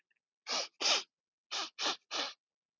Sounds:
Sniff